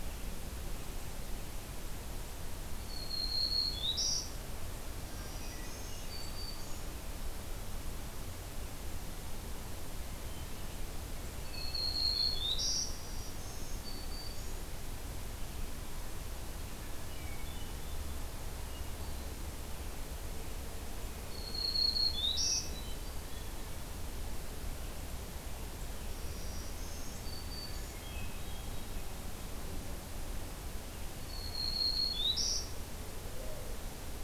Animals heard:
Hermit Thrush (Catharus guttatus)
Black-throated Green Warbler (Setophaga virens)
Mourning Dove (Zenaida macroura)

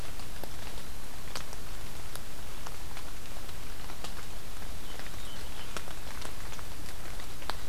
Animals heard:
Veery (Catharus fuscescens)

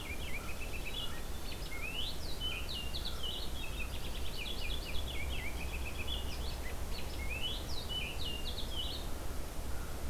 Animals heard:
American Crow (Corvus brachyrhynchos)
Purple Finch (Haemorhous purpureus)
Black-capped Chickadee (Poecile atricapillus)

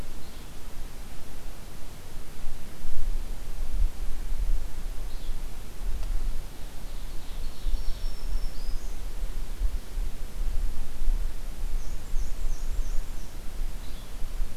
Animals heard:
Ovenbird (Seiurus aurocapilla)
Black-and-white Warbler (Mniotilta varia)
Black-throated Green Warbler (Setophaga virens)
Yellow-bellied Flycatcher (Empidonax flaviventris)

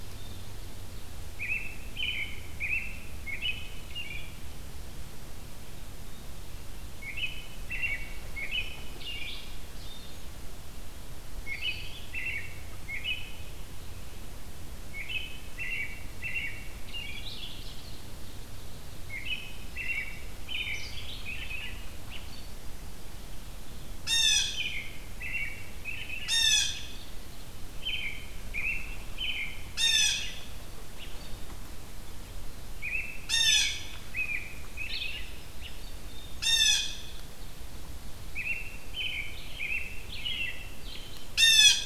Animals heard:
American Robin (Turdus migratorius)
Blue Jay (Cyanocitta cristata)
Red-eyed Vireo (Vireo olivaceus)

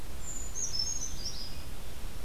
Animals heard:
Brown Creeper (Certhia americana)

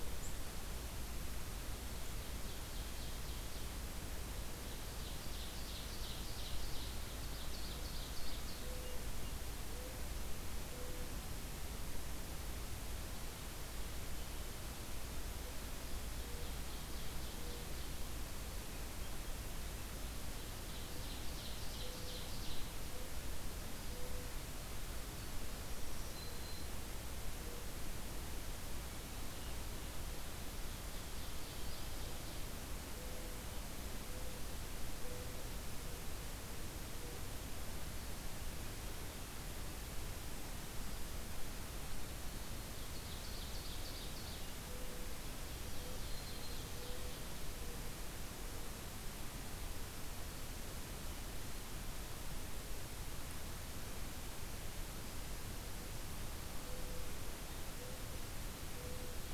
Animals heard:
Mourning Dove (Zenaida macroura)
Black-throated Green Warbler (Setophaga virens)
Ovenbird (Seiurus aurocapilla)
Hermit Thrush (Catharus guttatus)

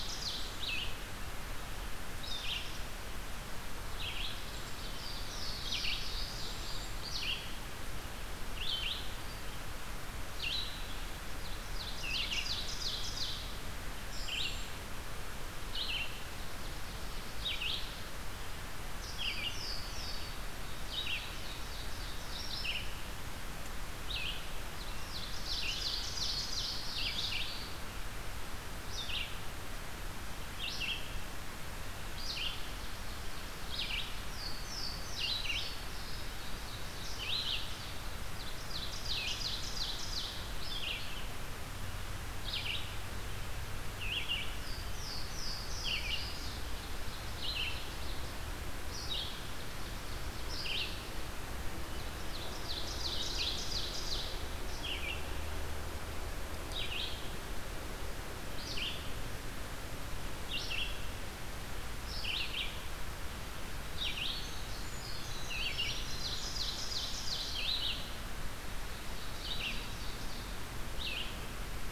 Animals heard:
Red-eyed Vireo (Vireo olivaceus)
Ovenbird (Seiurus aurocapilla)
Hermit Thrush (Catharus guttatus)
Black-capped Chickadee (Poecile atricapillus)
Louisiana Waterthrush (Parkesia motacilla)
Winter Wren (Troglodytes hiemalis)

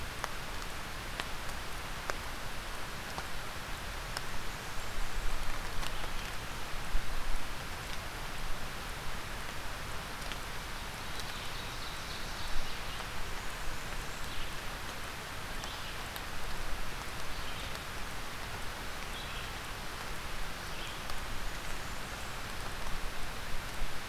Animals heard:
Red-eyed Vireo (Vireo olivaceus)
Blackburnian Warbler (Setophaga fusca)
Ovenbird (Seiurus aurocapilla)

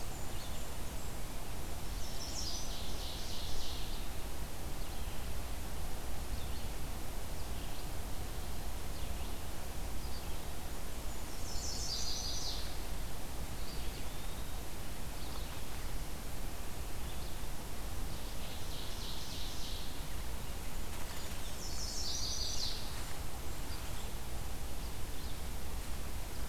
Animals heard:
Blackburnian Warbler (Setophaga fusca)
Eastern Wood-Pewee (Contopus virens)
Chestnut-sided Warbler (Setophaga pensylvanica)
Ovenbird (Seiurus aurocapilla)
Red-eyed Vireo (Vireo olivaceus)

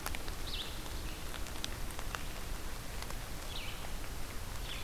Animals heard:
Red-eyed Vireo (Vireo olivaceus)

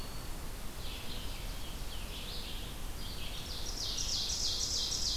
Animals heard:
Red-eyed Vireo (Vireo olivaceus)
Ovenbird (Seiurus aurocapilla)

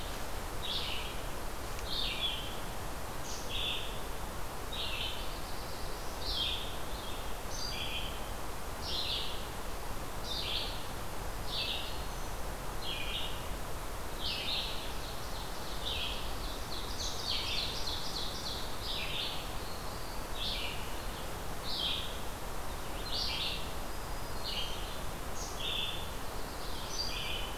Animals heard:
Black-throated Green Warbler (Setophaga virens)
Red-eyed Vireo (Vireo olivaceus)
Ovenbird (Seiurus aurocapilla)
Black-throated Blue Warbler (Setophaga caerulescens)

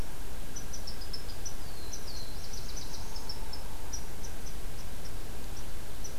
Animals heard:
unidentified call
Black-throated Blue Warbler (Setophaga caerulescens)

